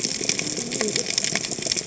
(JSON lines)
{"label": "biophony, cascading saw", "recorder": "HydroMoth"}